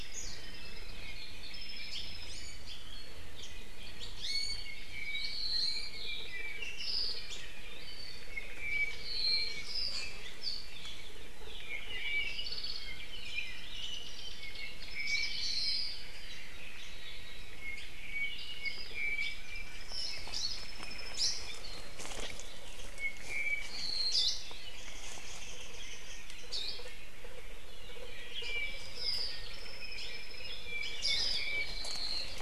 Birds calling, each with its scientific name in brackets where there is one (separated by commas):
Hawaii Akepa (Loxops coccineus), Iiwi (Drepanis coccinea), Hawaii Creeper (Loxops mana), Warbling White-eye (Zosterops japonicus), Apapane (Himatione sanguinea)